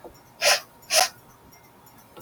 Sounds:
Sniff